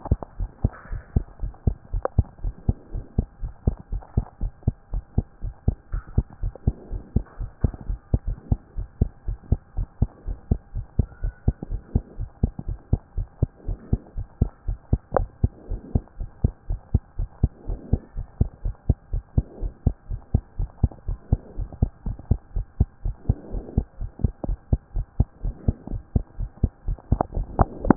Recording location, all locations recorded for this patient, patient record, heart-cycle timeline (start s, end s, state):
pulmonary valve (PV)
aortic valve (AV)+pulmonary valve (PV)+tricuspid valve (TV)+mitral valve (MV)
#Age: Child
#Sex: Female
#Height: 128.0 cm
#Weight: 34.3 kg
#Pregnancy status: False
#Murmur: Absent
#Murmur locations: nan
#Most audible location: nan
#Systolic murmur timing: nan
#Systolic murmur shape: nan
#Systolic murmur grading: nan
#Systolic murmur pitch: nan
#Systolic murmur quality: nan
#Diastolic murmur timing: nan
#Diastolic murmur shape: nan
#Diastolic murmur grading: nan
#Diastolic murmur pitch: nan
#Diastolic murmur quality: nan
#Outcome: Normal
#Campaign: 2014 screening campaign
0.00	0.08	systole
0.08	0.22	S2
0.22	0.38	diastole
0.38	0.50	S1
0.50	0.60	systole
0.60	0.74	S2
0.74	0.90	diastole
0.90	1.02	S1
1.02	1.12	systole
1.12	1.26	S2
1.26	1.42	diastole
1.42	1.54	S1
1.54	1.64	systole
1.64	1.78	S2
1.78	1.92	diastole
1.92	2.04	S1
2.04	2.14	systole
2.14	2.26	S2
2.26	2.42	diastole
2.42	2.54	S1
2.54	2.64	systole
2.64	2.76	S2
2.76	2.92	diastole
2.92	3.04	S1
3.04	3.14	systole
3.14	3.28	S2
3.28	3.42	diastole
3.42	3.54	S1
3.54	3.64	systole
3.64	3.78	S2
3.78	3.92	diastole
3.92	4.04	S1
4.04	4.14	systole
4.14	4.28	S2
4.28	4.42	diastole
4.42	4.52	S1
4.52	4.64	systole
4.64	4.76	S2
4.76	4.92	diastole
4.92	5.04	S1
5.04	5.14	systole
5.14	5.28	S2
5.28	5.44	diastole
5.44	5.54	S1
5.54	5.64	systole
5.64	5.78	S2
5.78	5.92	diastole
5.92	6.04	S1
6.04	6.16	systole
6.16	6.26	S2
6.26	6.42	diastole
6.42	6.54	S1
6.54	6.64	systole
6.64	6.76	S2
6.76	6.90	diastole
6.90	7.04	S1
7.04	7.12	systole
7.12	7.24	S2
7.24	7.40	diastole
7.40	7.50	S1
7.50	7.60	systole
7.60	7.72	S2
7.72	7.86	diastole
7.86	7.98	S1
7.98	8.06	systole
8.06	8.10	S2
8.10	8.26	diastole
8.26	8.38	S1
8.38	8.50	systole
8.50	8.60	S2
8.60	8.76	diastole
8.76	8.88	S1
8.88	9.00	systole
9.00	9.10	S2
9.10	9.26	diastole
9.26	9.38	S1
9.38	9.50	systole
9.50	9.60	S2
9.60	9.76	diastole
9.76	9.88	S1
9.88	9.98	systole
9.98	10.10	S2
10.10	10.26	diastole
10.26	10.38	S1
10.38	10.50	systole
10.50	10.60	S2
10.60	10.74	diastole
10.74	10.86	S1
10.86	10.98	systole
10.98	11.08	S2
11.08	11.22	diastole
11.22	11.34	S1
11.34	11.44	systole
11.44	11.58	S2
11.58	11.70	diastole
11.70	11.82	S1
11.82	11.94	systole
11.94	12.04	S2
12.04	12.18	diastole
12.18	12.30	S1
12.30	12.42	systole
12.42	12.52	S2
12.52	12.66	diastole
12.66	12.78	S1
12.78	12.88	systole
12.88	13.00	S2
13.00	13.16	diastole
13.16	13.28	S1
13.28	13.38	systole
13.38	13.52	S2
13.52	13.66	diastole
13.66	13.78	S1
13.78	13.88	systole
13.88	14.02	S2
14.02	14.16	diastole
14.16	14.26	S1
14.26	14.38	systole
14.38	14.52	S2
14.52	14.66	diastole
14.66	14.78	S1
14.78	14.88	systole
14.88	15.00	S2
15.00	15.14	diastole
15.14	15.30	S1
15.30	15.40	systole
15.40	15.54	S2
15.54	15.70	diastole
15.70	15.82	S1
15.82	15.94	systole
15.94	16.04	S2
16.04	16.20	diastole
16.20	16.30	S1
16.30	16.40	systole
16.40	16.54	S2
16.54	16.68	diastole
16.68	16.80	S1
16.80	16.90	systole
16.90	17.04	S2
17.04	17.18	diastole
17.18	17.28	S1
17.28	17.40	systole
17.40	17.54	S2
17.54	17.68	diastole
17.68	17.80	S1
17.80	17.90	systole
17.90	18.02	S2
18.02	18.16	diastole
18.16	18.26	S1
18.26	18.36	systole
18.36	18.50	S2
18.50	18.64	diastole
18.64	18.76	S1
18.76	18.86	systole
18.86	19.00	S2
19.00	19.12	diastole
19.12	19.24	S1
19.24	19.34	systole
19.34	19.46	S2
19.46	19.62	diastole
19.62	19.74	S1
19.74	19.82	systole
19.82	19.94	S2
19.94	20.10	diastole
20.10	20.20	S1
20.20	20.30	systole
20.30	20.42	S2
20.42	20.58	diastole
20.58	20.70	S1
20.70	20.82	systole
20.82	20.92	S2
20.92	21.08	diastole
21.08	21.18	S1
21.18	21.28	systole
21.28	21.42	S2
21.42	21.58	diastole
21.58	21.70	S1
21.70	21.78	systole
21.78	21.90	S2
21.90	22.06	diastole
22.06	22.18	S1
22.18	22.26	systole
22.26	22.38	S2
22.38	22.54	diastole
22.54	22.66	S1
22.66	22.76	systole
22.76	22.88	S2
22.88	23.04	diastole
23.04	23.16	S1
23.16	23.26	systole
23.26	23.38	S2
23.38	23.52	diastole
23.52	23.64	S1
23.64	23.76	systole
23.76	23.86	S2
23.86	24.00	diastole
24.00	24.10	S1
24.10	24.20	systole
24.20	24.34	S2
24.34	24.48	diastole
24.48	24.60	S1
24.60	24.68	systole
24.68	24.80	S2
24.80	24.94	diastole
24.94	25.06	S1
25.06	25.16	systole
25.16	25.30	S2
25.30	25.44	diastole
25.44	25.56	S1
25.56	25.64	systole
25.64	25.78	S2
25.78	25.90	diastole
25.90	26.02	S1
26.02	26.12	systole
26.12	26.26	S2
26.26	26.38	diastole
26.38	26.50	S1
26.50	26.62	systole
26.62	26.72	S2
26.72	26.86	diastole
26.86	26.98	S1
26.98	27.08	systole
27.08	27.20	S2
27.20	27.34	diastole
27.34	27.48	S1
27.48	27.56	systole
27.56	27.68	S2
27.68	27.82	diastole
27.82	27.97	S1